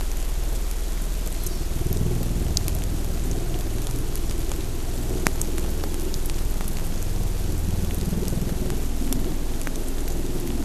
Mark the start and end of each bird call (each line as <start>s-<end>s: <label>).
1.3s-1.6s: Hawaii Amakihi (Chlorodrepanis virens)